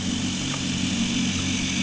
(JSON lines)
{"label": "anthrophony, boat engine", "recorder": "HydroMoth"}